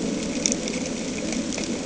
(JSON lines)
{"label": "anthrophony, boat engine", "recorder": "HydroMoth"}